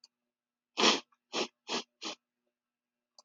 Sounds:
Sniff